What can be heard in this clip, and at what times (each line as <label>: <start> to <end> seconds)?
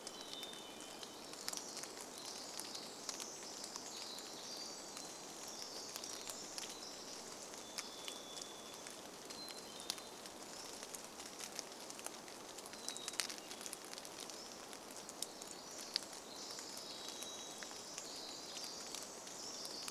Hermit Thrush song: 0 to 2 seconds
Varied Thrush song: 0 to 2 seconds
Pacific Wren song: 0 to 8 seconds
rain: 0 to 20 seconds
Varied Thrush song: 6 to 10 seconds
Hermit Thrush song: 8 to 14 seconds
Pacific-slope Flycatcher song: 10 to 12 seconds
Pacific-slope Flycatcher song: 14 to 16 seconds
Pacific Wren song: 14 to 20 seconds
Varied Thrush song: 16 to 18 seconds